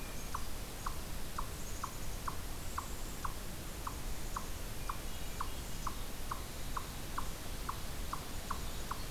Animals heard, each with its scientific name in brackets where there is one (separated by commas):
Black-capped Chickadee (Poecile atricapillus), Hermit Thrush (Catharus guttatus), Eastern Chipmunk (Tamias striatus)